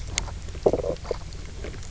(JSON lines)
{"label": "biophony, knock croak", "recorder": "SoundTrap 300"}